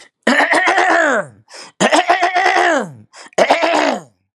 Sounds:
Throat clearing